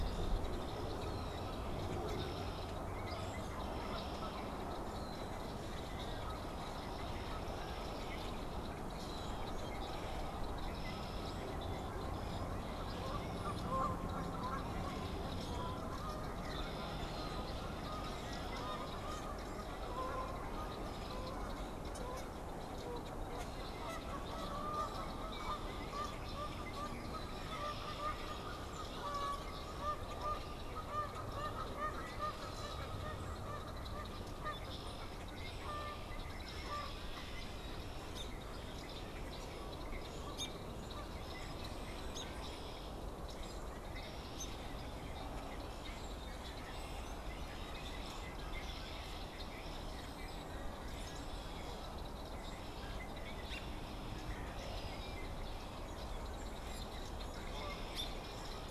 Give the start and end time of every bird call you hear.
0.0s-30.5s: unidentified bird
0.0s-58.7s: Red-winged Blackbird (Agelaius phoeniceus)
3.4s-37.6s: Canada Goose (Branta canadensis)
38.0s-38.4s: American Robin (Turdus migratorius)
40.1s-40.6s: American Robin (Turdus migratorius)
42.0s-42.3s: American Robin (Turdus migratorius)
44.2s-44.6s: American Robin (Turdus migratorius)
47.4s-48.6s: unidentified bird
53.3s-53.7s: American Robin (Turdus migratorius)
56.4s-57.0s: unidentified bird
57.8s-58.1s: American Robin (Turdus migratorius)

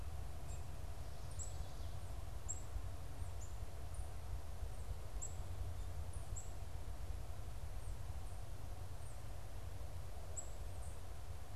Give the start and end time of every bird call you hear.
0.4s-6.7s: Black-capped Chickadee (Poecile atricapillus)
8.6s-11.6s: Black-capped Chickadee (Poecile atricapillus)

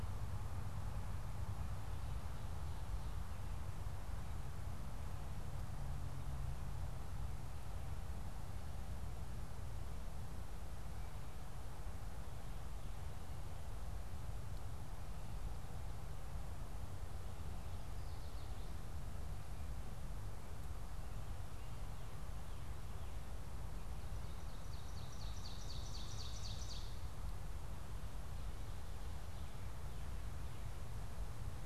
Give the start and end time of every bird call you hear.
24.0s-27.1s: Ovenbird (Seiurus aurocapilla)

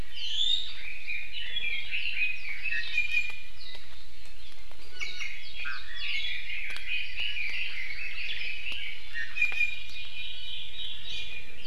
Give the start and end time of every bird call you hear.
0.1s-0.8s: Iiwi (Drepanis coccinea)
0.8s-2.9s: Red-billed Leiothrix (Leiothrix lutea)
2.8s-3.8s: Iiwi (Drepanis coccinea)
4.9s-5.4s: Iiwi (Drepanis coccinea)
5.6s-9.0s: Red-billed Leiothrix (Leiothrix lutea)
6.7s-8.6s: Hawaii Amakihi (Chlorodrepanis virens)
9.0s-9.9s: Iiwi (Drepanis coccinea)
9.9s-11.6s: Hawaii Amakihi (Chlorodrepanis virens)

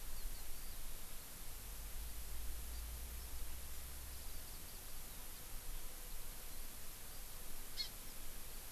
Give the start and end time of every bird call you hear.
7.8s-7.9s: Hawaii Amakihi (Chlorodrepanis virens)

